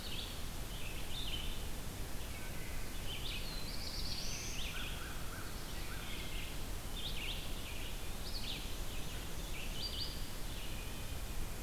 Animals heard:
American Crow (Corvus brachyrhynchos), Black-throated Blue Warbler (Setophaga caerulescens), Wood Thrush (Hylocichla mustelina), Black-and-white Warbler (Mniotilta varia), Red-eyed Vireo (Vireo olivaceus)

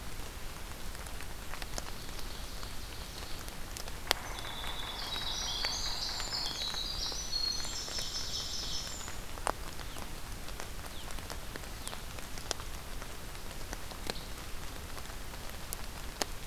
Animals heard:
Pine Warbler (Setophaga pinus), Yellow-bellied Sapsucker (Sphyrapicus varius), Winter Wren (Troglodytes hiemalis), Ovenbird (Seiurus aurocapilla)

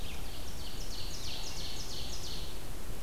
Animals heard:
Ovenbird (Seiurus aurocapilla), Red-eyed Vireo (Vireo olivaceus)

